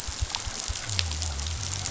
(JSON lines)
{"label": "biophony", "recorder": "SoundTrap 500"}